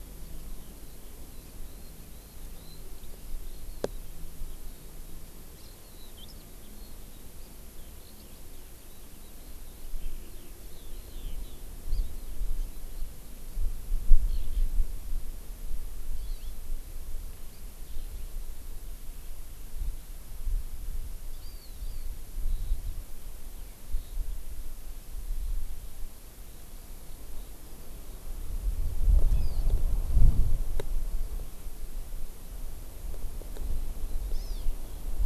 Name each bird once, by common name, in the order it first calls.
Eurasian Skylark, House Finch, Hawaii Amakihi